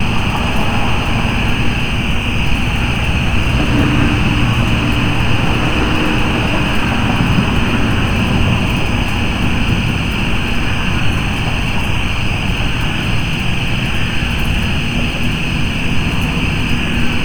Are wolves howling in the night?
no